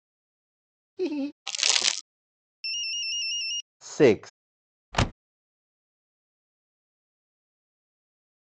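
First, laughter is audible. Then you can hear crumpling. After that, a ringtone can be heard. Afterwards, a voice says "six." Finally, there is the sound of a car.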